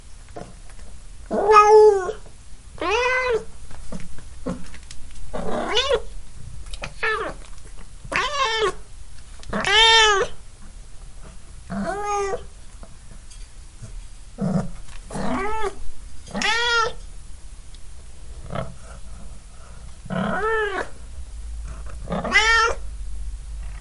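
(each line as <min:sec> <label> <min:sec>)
0:00.0 Microphone noise hums softly in the background. 0:23.8
0:00.3 Footsteps thudding softly on wooden flooring. 0:00.5
0:01.3 A cat meows loudly and sadly at close range. 0:02.2
0:02.8 A cat meows angrily at close range. 0:03.5
0:03.7 Footsteps thudding softly on wooden flooring. 0:04.6
0:05.3 A cat meows angrily at close range. 0:06.1
0:06.7 Footsteps thudding softly on wooden flooring. 0:06.9
0:07.0 A cat meows nearby. 0:07.4
0:08.1 A cat meows angrily at close range. 0:08.8
0:09.4 Footsteps thudding softly on wooden flooring. 0:09.6
0:09.6 A cat meows nearby. 0:10.3
0:11.7 A cat meows sadly at close range. 0:12.5
0:14.4 A cat wheezes softly. 0:14.7
0:15.2 A cat meows nearby. 0:15.7
0:16.3 A cat meows angrily at close range. 0:17.0
0:18.5 A cat wheezes softly. 0:18.7
0:18.8 A cat is breathing heavily. 0:19.9
0:20.1 A cat meows nearby. 0:20.9
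0:21.6 A cat wheezes softly. 0:22.0
0:22.1 A cat meows angrily at close range. 0:22.7
0:23.6 A cat wheezes softly. 0:23.8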